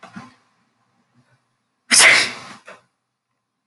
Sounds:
Sneeze